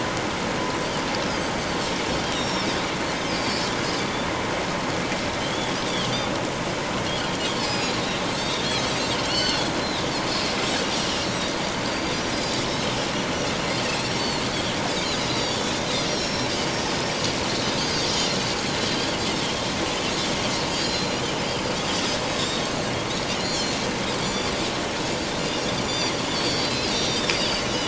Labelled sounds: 2.3	2.7	Pacific white-sided dolphin, 3.5 to 5.7 kHz
3.2	3.7	Pacific white-sided dolphin, 4.6 to 5.3 kHz
5.4	5.8	Pacific white-sided dolphin, 3.0 to 3.5 kHz
7.6	10.1	Pacific white-sided dolphin, 2.4 to 5.4 kHz
10.8	12.6	Pacific white-sided dolphin, 4.5 to 6.0 kHz
13.8	15.8	Pacific white-sided dolphin, 2.5 to 6.5 kHz
16.1	16.5	Pacific white-sided dolphin, 3.9 to 5.9 kHz
16.8	18.1	Pacific white-sided dolphin, 4.5 to 6.5 kHz
20.7	21.2	Pacific white-sided dolphin, 3.9 to 5.3 kHz
22.3	22.7	Pacific white-sided dolphin, 3.4 to 4.6 kHz
23.3	24.5	Pacific white-sided dolphin, 3.2 to 7.3 kHz
25.8	27.7	Pacific white-sided dolphin, 3.3 to 7.2 kHz

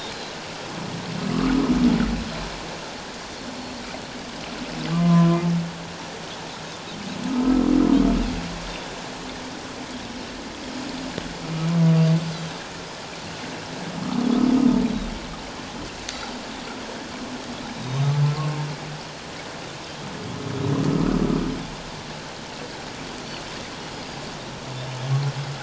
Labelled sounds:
0.1	0.3	Pacific white-sided dolphin, 3.9 to 4.2 kHz
4.9	5.4	humpback whale, 0.94 to 1.2 kHz
8.7	9.0	Pacific white-sided dolphin, 3.4 to 3.7 kHz
14.9	15.1	Pacific white-sided dolphin, 3.6 to 4.0 kHz
17.7	18.1	Pacific white-sided dolphin, 3.7 to 4.0 kHz
20.9	21.2	humpback whale, 1.2 to 1.5 kHz

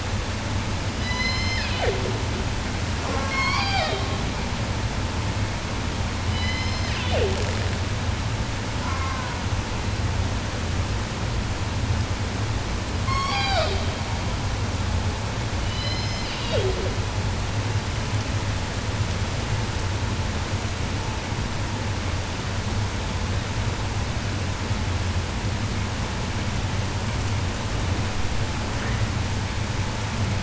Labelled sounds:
0.9	2.2	killer whale, southern resident, J pod, call S01, 0.10 to 8.0 kHz
2.9	4.3	killer whale, southern resident, J pod, call S04 and call S01, 0.10 to 8.0 kHz
6.2	7.9	killer whale, southern resident, J pod, call S01, 0.10 to 8.0 kHz
8.8	9.6	killer whale, southern resident, 0.10 to 3.0 kHz
12.7	14.2	killer whale, southern resident, J pod, call S01, 0.24 to 8.0 kHz
15.6	17.1	killer whale, southern resident, J pod, call S01, 0.10 to 7.2 kHz

